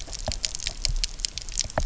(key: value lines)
label: biophony, knock
recorder: SoundTrap 300